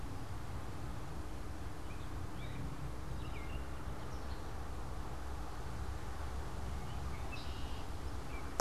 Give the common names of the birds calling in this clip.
Gray Catbird, Red-winged Blackbird